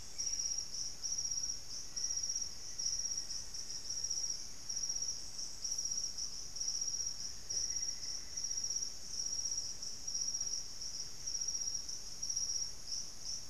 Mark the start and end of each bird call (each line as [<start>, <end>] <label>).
[0.00, 0.71] Buff-breasted Wren (Cantorchilus leucotis)
[0.00, 13.50] White-throated Toucan (Ramphastos tucanus)
[1.61, 4.41] Black-faced Antthrush (Formicarius analis)
[6.71, 8.91] Plumbeous Antbird (Myrmelastes hyperythrus)